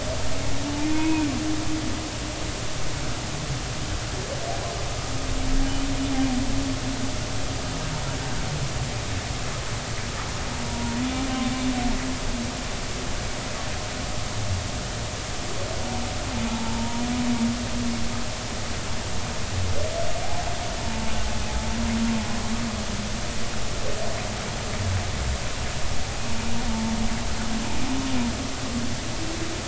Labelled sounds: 0.9	1.3	humpback whale, 0.90 to 2.6 kHz
10.7	11.0	humpback whale, 0.90 to 0.99 kHz
16.5	17.0	humpback whale, 0.83 to 0.99 kHz
20.8	21.1	humpback whale, 0.86 to 0.96 kHz
26.7	26.9	humpback whale, 0.83 to 0.96 kHz

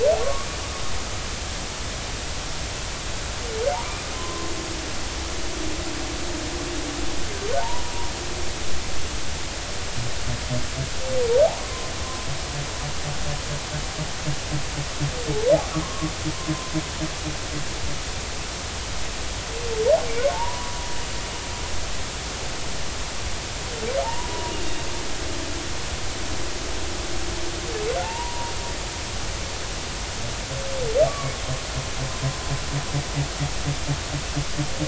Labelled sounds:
0.2	0.5	humpback whale, 1.0 to 1.2 kHz
4.1	4.5	humpback whale, 0.96 to 1.1 kHz
7.6	7.9	humpback whale, 0.86 to 1.0 kHz
11.6	11.9	humpback whale, 0.99 to 1.1 kHz
15.7	16.1	humpback whale, 0.96 to 1.4 kHz
20.3	20.7	humpback whale, 0.83 to 1.0 kHz
24.0	24.3	humpback whale, 0.80 to 1.0 kHz
28.0	28.5	humpback whale, 0.80 to 1.0 kHz
31.1	31.3	humpback whale, 1.1 to 1.2 kHz

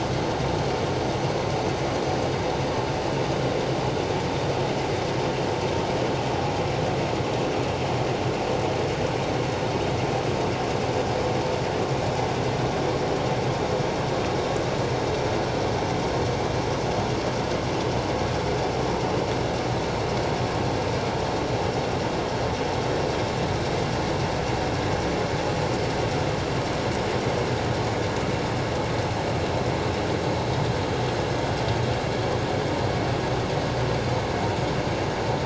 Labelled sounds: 29.0	29.3	vessel noise, 6.2 to 6.4 kHz

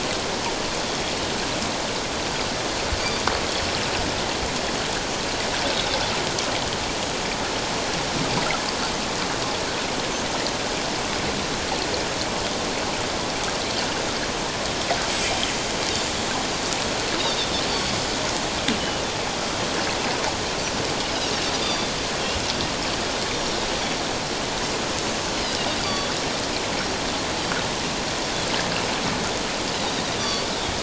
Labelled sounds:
5.7	6.0	Pacific white-sided dolphin, 3.4 to 3.8 kHz
17.2	17.5	Pacific white-sided dolphin, 3.5 to 3.9 kHz
18.8	19.1	Pacific white-sided dolphin, 2.8 to 3.1 kHz
20.5	20.8	Pacific white-sided dolphin, 5.7 to 6.1 kHz
21.6	21.9	Pacific white-sided dolphin, 3.4 to 4.9 kHz
23.3	23.6	Pacific white-sided dolphin, 5.4 to 5.8 kHz
25.8	26.1	Pacific white-sided dolphin, 3.3 to 3.5 kHz
30.2	30.5	Pacific white-sided dolphin, 3.3 to 4.8 kHz

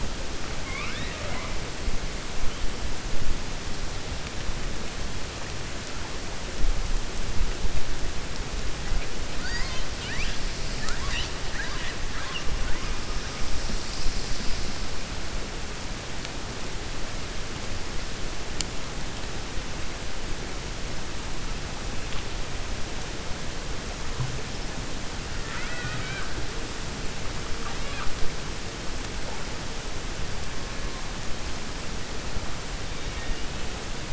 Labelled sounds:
0.6	1.6	killer whale, 0.58 to 4.0 kHz
11.4	12.0	killer whale, 0.98 to 4.0 kHz
25.4	26.3	killer whale, 0.94 to 4.0 kHz
27.5	28.1	killer whale, 0.58 to 4.2 kHz
32.9	33.4	killer whale, 1.8 to 3.7 kHz

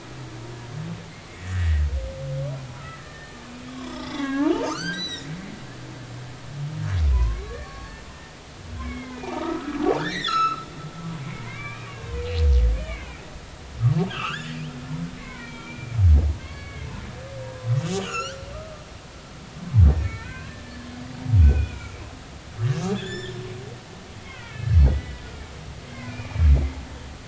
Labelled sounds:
1.4	1.8	humpback whale, 1.7 to 2.0 kHz
3.0	5.3	humpback whale, 0.80 to 8.0 kHz
7.1	8.4	humpback whale, 0.80 to 4.5 kHz
8.8	10.7	humpback whale, 0.80 to 7.4 kHz
11.2	12.2	humpback whale, 0.99 to 2.9 kHz
12.8	13.2	humpback whale, 1.4 to 2.5 kHz
14.1	14.5	humpback whale, 1.1 to 7.0 kHz
15.2	16.9	humpback whale, 1.0 to 4.5 kHz
17.4	18.8	humpback whale, 0.90 to 7.3 kHz
20.0	20.5	humpback whale, 1.3 to 2.4 kHz
21.4	23.4	humpback whale, 1.3 to 7.2 kHz
24.2	25.2	humpback whale, 1.8 to 3.0 kHz
25.5	26.5	humpback whale, 1.6 to 2.5 kHz

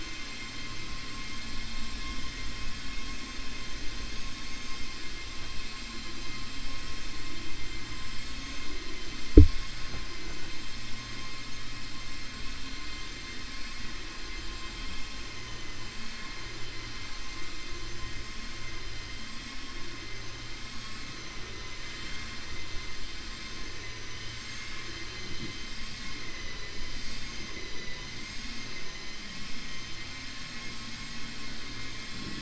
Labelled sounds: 15.3	15.8	vessel noise, 1.0 to 3.1 kHz
23.8	24.3	vessel noise, 1.6 to 3.8 kHz
26.9	27.9	vessel noise, 4.3 to 7.6 kHz
28.2	29.1	vessel noise, 1.1 to 7.1 kHz

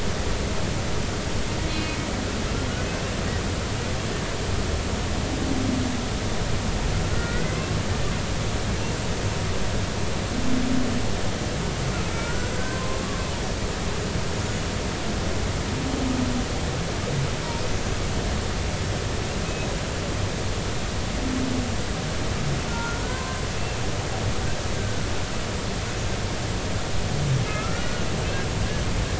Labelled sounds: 1.7	2.0	humpback whale, 2.4 to 2.6 kHz
7.1	7.6	humpback whale, 1.4 to 2.1 kHz
12.1	13.0	humpback whale, 0.99 to 1.7 kHz
22.7	23.4	humpback whale, 0.96 to 1.5 kHz
24.8	25.1	humpback whale, 1.4 to 1.6 kHz
27.5	27.8	humpback whale, 1.2 to 1.5 kHz

